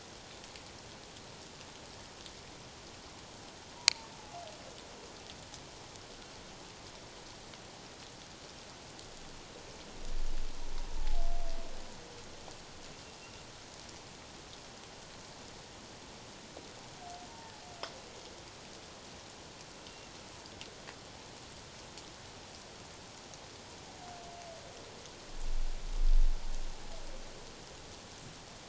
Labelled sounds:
3.8	4.1	humpback whale, 0.88 to 1.1 kHz
13.2	13.5	humpback whale, 2.7 to 2.8 kHz
19.9	20.1	humpback whale, 2.7 to 2.8 kHz

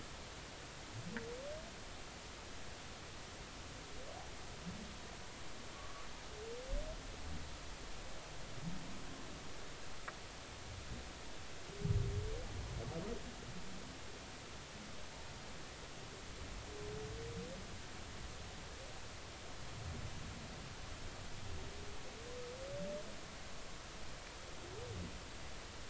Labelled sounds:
5.8	6.1	humpback whale, 1.1 to 1.2 kHz

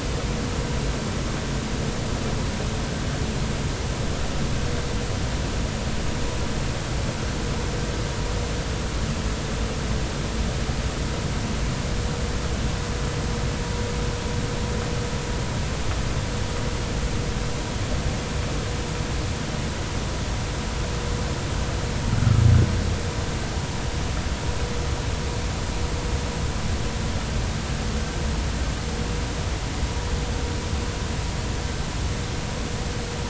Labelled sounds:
22.2	22.4	humpback whale, 1.2 to 1.5 kHz

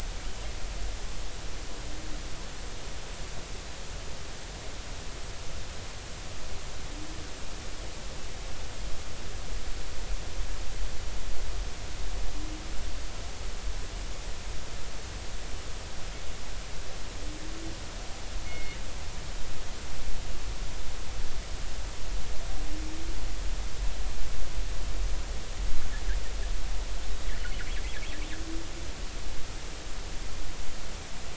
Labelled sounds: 18.5	18.8	killer whale, northern resident, G clan, call N24ii, 2.1 to 2.2 kHz

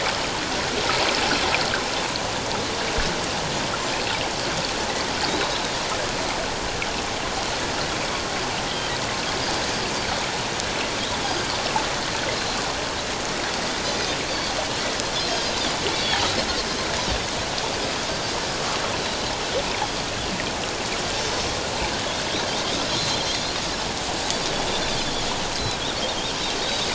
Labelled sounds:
5.3	5.5	Pacific white-sided dolphin, 3.7 to 4.0 kHz
8.7	8.9	Pacific white-sided dolphin, 3.0 to 3.4 kHz
11.2	11.5	Pacific white-sided dolphin, 4.7 to 5.0 kHz
15.3	15.6	Pacific white-sided dolphin, 6.3 to 6.5 kHz
15.9	16.2	Pacific white-sided dolphin, 3.2 to 3.5 kHz
22.9	23.4	Pacific white-sided dolphin, 3.9 to 4.2 kHz
25.5	25.8	Pacific white-sided dolphin, 3.8 to 4.3 kHz
26.6	26.9	Pacific white-sided dolphin, 3.5 to 3.9 kHz

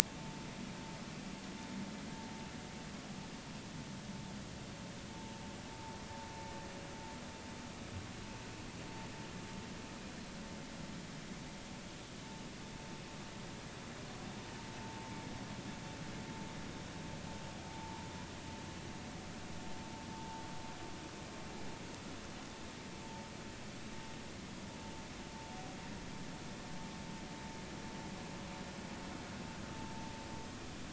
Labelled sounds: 14.8	15.1	vessel noise, 0.86 to 0.93 kHz
17.7	18.1	vessel noise, 0.80 to 1.0 kHz

